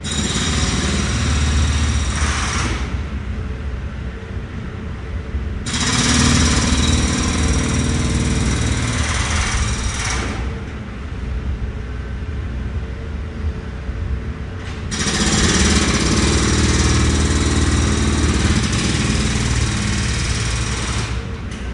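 Loud jackhammer noise at a construction site. 0:00.0 - 0:03.5
Construction sounds. 0:03.5 - 0:05.3
Loud jackhammer noise at a construction site. 0:05.4 - 0:10.9
Construction sounds. 0:11.0 - 0:14.7
Loud jackhammer noise at a construction site. 0:14.7 - 0:21.6

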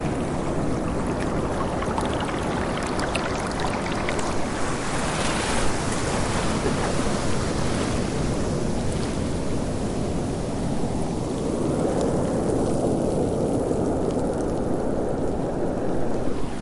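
Ocean waves continuously hitting rocks and sand with gentle, rhythmic crashes. 0:00.0 - 0:16.6

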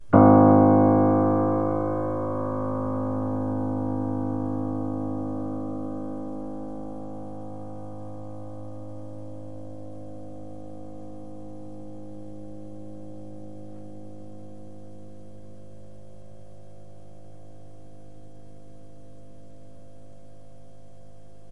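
A low musical note is played. 0:00.0 - 0:21.5
A piano is playing. 0:00.0 - 0:21.5

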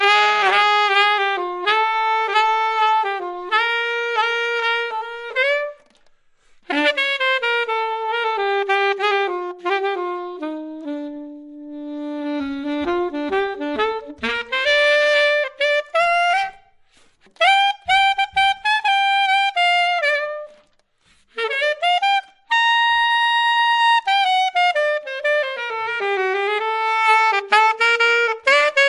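A saxophone plays loudly in a rhythmic, fading pattern. 0:00.0 - 0:05.8
A saxophone plays loudly in a rhythmic, fading pattern. 0:06.6 - 0:11.5
A saxophone plays loudly with a rhythmic pattern that gradually increases. 0:11.5 - 0:16.5
A saxophone plays loudly in a rhythmic, fading pattern. 0:17.4 - 0:20.7
A saxophone plays loudly with a rhythmic pattern that gradually increases. 0:21.3 - 0:28.9

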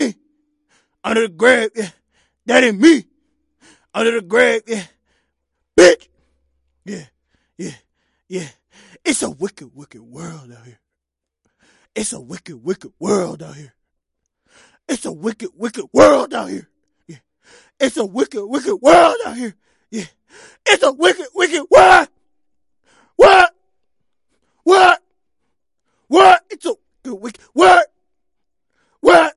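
A person is rapping. 0:00.9 - 0:03.1
A person is rapping. 0:03.7 - 0:04.9
A person is rapping. 0:05.7 - 0:06.0
A person is rapping. 0:06.9 - 0:10.8
A person is rapping. 0:11.9 - 0:13.7
A person is rapping. 0:14.8 - 0:16.7
A person is rapping. 0:17.7 - 0:22.1
A person is rapping. 0:23.1 - 0:23.6
A person is rapping. 0:24.6 - 0:25.1
A person is rapping. 0:26.1 - 0:27.9
A person is rapping. 0:29.0 - 0:29.4

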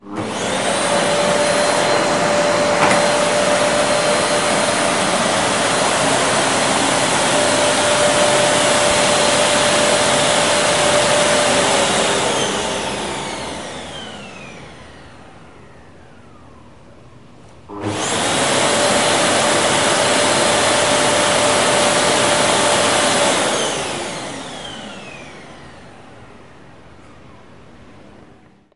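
A vacuum cleaner sound gradually increases in volume and then fades away. 0:00.1 - 0:15.7
A vacuum cleaner is gradually turning off. 0:15.6 - 0:17.7
A vacuum cleaner sound gradually increases in volume and then fades away. 0:17.7 - 0:27.0
A vacuum cleaner is gradually turning off. 0:27.0 - 0:28.8

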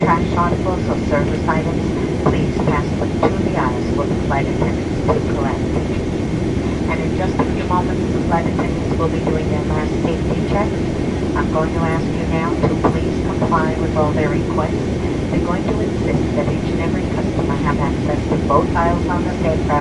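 Distant muffled airplane announcement. 0:00.0 - 0:19.8

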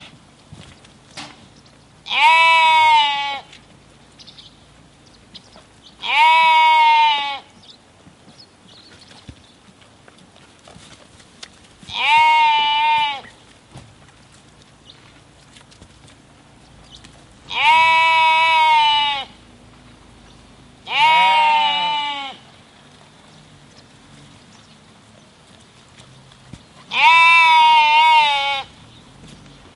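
Metallic sound. 0:00.7 - 0:01.8
A sheep bleats loudly. 0:01.8 - 0:04.5
Birds are singing in the distance. 0:04.3 - 0:05.9
A sheep bleats loudly. 0:05.8 - 0:07.7
Birds are singing in the distance. 0:07.7 - 0:09.6
Sheep walking on grass. 0:09.5 - 0:11.7
A sheep is baaing nearby. 0:11.7 - 0:14.1
Sheep are chewing. 0:13.9 - 0:17.4
A sheep bleats loudly. 0:17.3 - 0:19.7
Two sheep bleat loudly. 0:20.3 - 0:23.2
A passing car makes a subtle sound. 0:23.5 - 0:26.8
A lamb bleats nearby. 0:26.8 - 0:29.2

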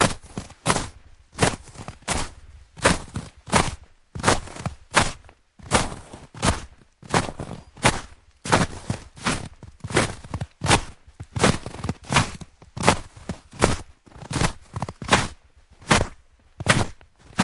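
A man walks loudly with boots in fresh snow. 0:00.0 - 0:17.4

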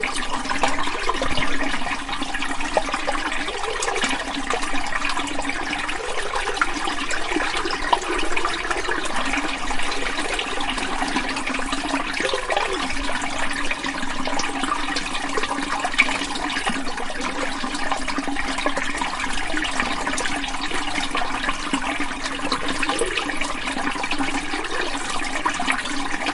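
A stream of water pouring. 0:00.1 - 0:02.8
Water flowing. 0:03.0 - 0:08.0
Water flowing down a stream. 0:08.0 - 0:16.3
Water flowing downstream. 0:16.5 - 0:26.3

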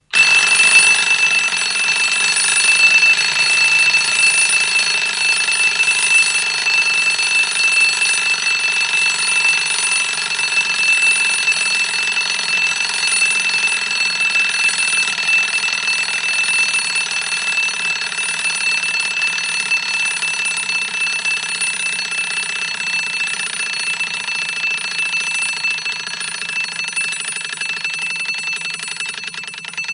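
An old alarm clock is continuously ringing with a loud metallic sound that fades at the end. 0:00.1 - 0:29.9

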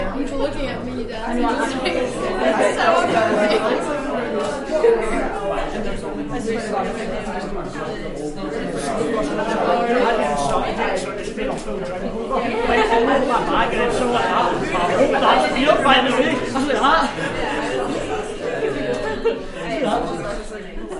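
A lively crowd buzzes with overlapping chatter, voices rising and falling in a rhythmic hum as groups talk and laugh, blending into a constant, energetic murmur. 0:00.0 - 0:21.0

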